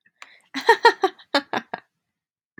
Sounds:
Laughter